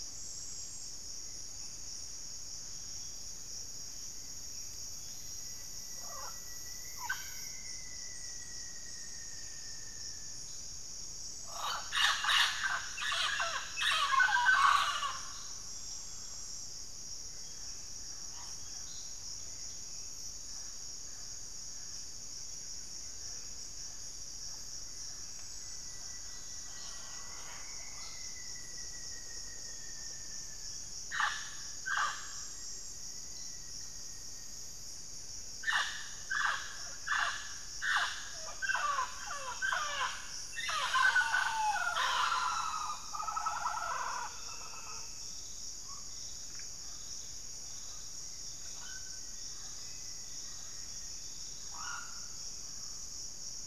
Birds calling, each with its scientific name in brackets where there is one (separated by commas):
Thrush-like Wren (Campylorhynchus turdinus), Rufous-fronted Antthrush (Formicarius rufifrons), Mealy Parrot (Amazona farinosa), Buff-breasted Wren (Cantorchilus leucotis), White-rumped Sirystes (Sirystes albocinereus), Black-faced Antthrush (Formicarius analis)